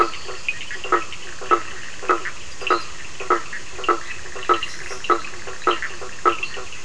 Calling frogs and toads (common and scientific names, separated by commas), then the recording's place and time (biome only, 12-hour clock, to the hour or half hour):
blacksmith tree frog (Boana faber), Cochran's lime tree frog (Sphaenorhynchus surdus), fine-lined tree frog (Boana leptolineata)
Atlantic Forest, ~10pm